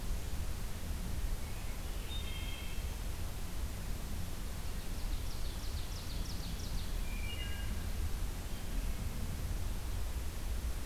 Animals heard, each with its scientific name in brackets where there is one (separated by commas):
Wood Thrush (Hylocichla mustelina), Ovenbird (Seiurus aurocapilla)